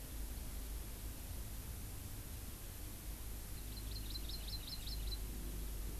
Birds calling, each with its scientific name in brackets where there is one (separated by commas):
Hawaii Amakihi (Chlorodrepanis virens)